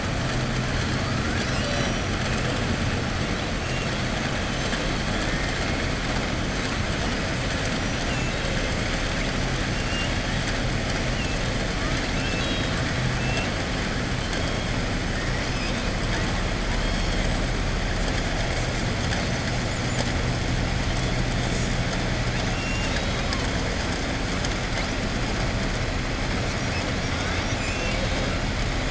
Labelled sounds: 8.0	8.5	killer whale, southern resident, 2.1 to 3.8 kHz
11.8	12.8	killer whale, southern resident, 2.6 to 5.4 kHz
22.3	23.4	killer whale, southern resident, 2.7 to 6.9 kHz

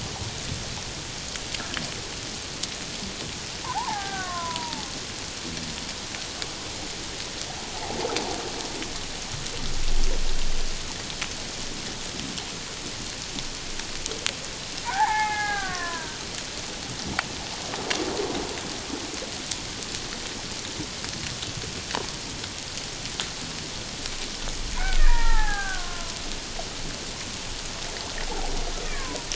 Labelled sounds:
3.7	4.9	killer whale, Bigg's (transient), 0.78 to 1.8 kHz
14.9	16.2	killer whale, Bigg's (transient), 0.78 to 2.2 kHz
25.0	26.2	killer whale, Bigg's (transient), 0.78 to 1.9 kHz
28.8	29.3	killer whale, Bigg's (transient), 0.91 to 2.0 kHz

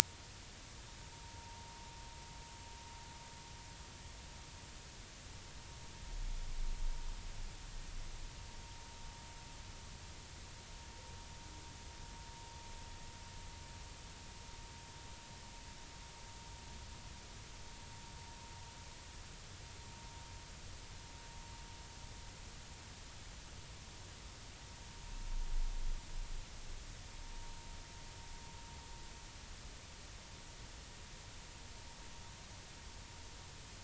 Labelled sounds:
1.1	1.7	vessel noise, 0.83 to 0.99 kHz

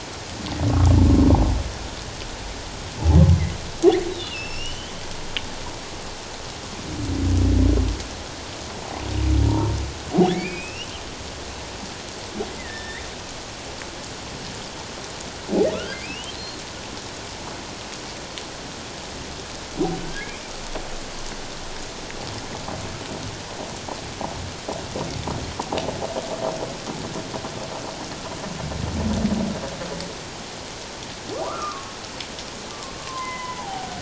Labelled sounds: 4.1	4.9	humpback whale, 2.6 to 5.9 kHz
9.4	10.9	humpback whale, 0.78 to 3.0 kHz
12.6	13.0	humpback whale, 1.6 to 3.7 kHz
15.7	16.4	humpback whale, 1.2 to 3.2 kHz
20.0	20.4	humpback whale, 1.5 to 1.8 kHz
31.5	32.0	humpback whale, 1.0 to 1.4 kHz
33.0	33.9	humpback whale, 0.78 to 3.1 kHz

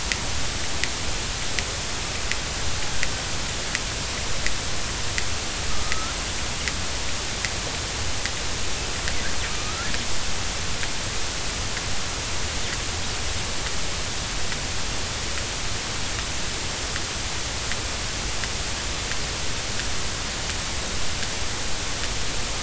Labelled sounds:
5.7	6.1	killer whale, northern resident, A clan, 1.2 to 1.5 kHz
9.5	9.9	killer whale, northern resident, A clan, 1.2 to 1.5 kHz

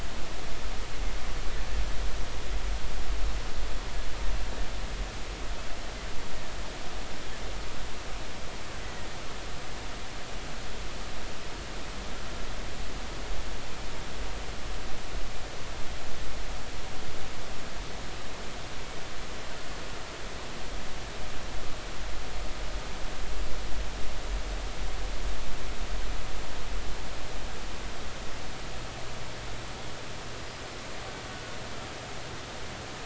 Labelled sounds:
8.8	9.1	killer whale, Bigg's (transient), 1.8 to 2.0 kHz
30.4	30.7	killer whale, Bigg's (transient), 4.8 to 5.2 kHz
31.3	31.6	killer whale, Bigg's (transient), 1.4 to 1.5 kHz

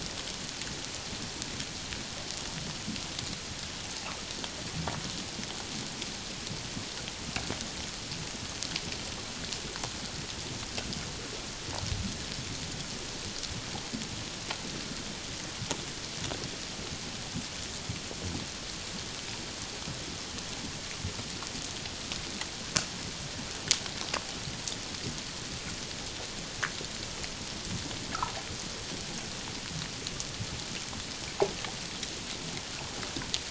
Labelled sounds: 28.1	28.4	water noise, 0.81 to 1.5 kHz

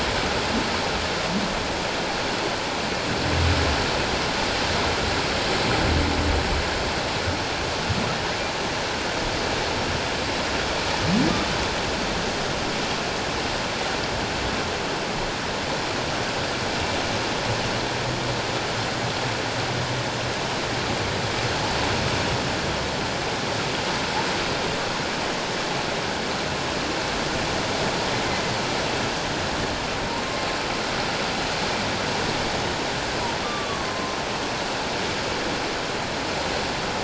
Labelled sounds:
33.4	34.2	humpback whale, 1.0 to 1.3 kHz

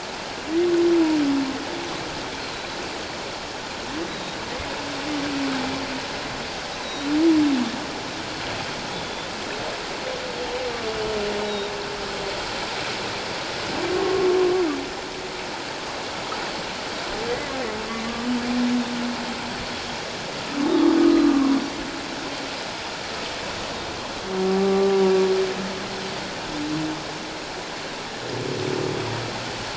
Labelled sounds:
2.5	2.8	Pacific white-sided dolphin, 3.9 to 4.0 kHz
4.1	4.4	Pacific white-sided dolphin, 3.7 to 4.0 kHz
6.8	7.1	Pacific white-sided dolphin, 3.7 to 4.1 kHz
8.9	9.3	Pacific white-sided dolphin, 3.4 to 3.6 kHz
11.4	11.7	Pacific white-sided dolphin, 3.5 to 4.1 kHz
13.9	14.3	humpback whale, 1.1 to 1.2 kHz
18.1	18.3	humpback whale, 1.1 to 1.2 kHz
21.0	21.4	humpback whale, 1.1 to 1.3 kHz
24.4	25.0	humpback whale, 0.78 to 1.2 kHz

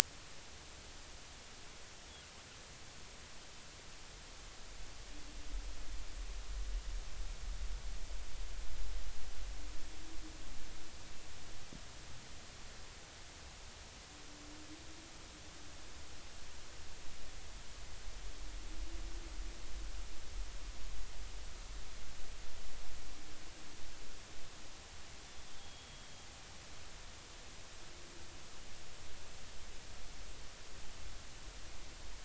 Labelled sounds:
25.6	26.1	killer whale, northern resident, G clan, GG subclan, 3.2 to 3.4 kHz

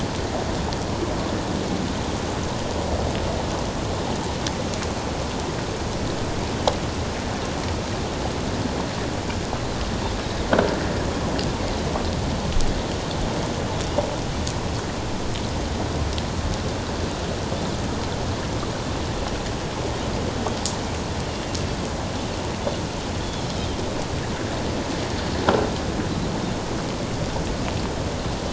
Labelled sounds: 23.2	23.5	Pacific white-sided dolphin, 3.2 to 3.5 kHz

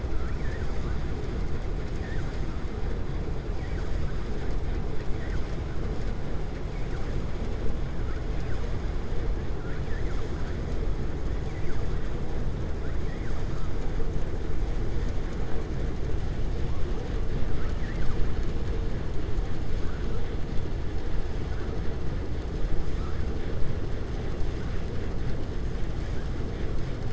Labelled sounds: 0.1	0.7	vessel noise, 1.1 to 2.5 kHz
13.0	13.4	vessel noise, 1.1 to 2.2 kHz
17.5	18.2	vessel noise, 0.96 to 2.9 kHz

